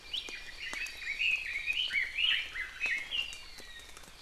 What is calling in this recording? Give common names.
Red-billed Leiothrix